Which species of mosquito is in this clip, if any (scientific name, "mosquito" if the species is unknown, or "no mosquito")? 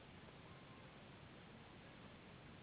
Anopheles gambiae s.s.